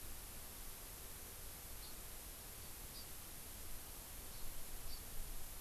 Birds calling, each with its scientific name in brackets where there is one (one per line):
Hawaii Amakihi (Chlorodrepanis virens)